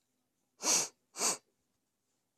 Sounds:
Sniff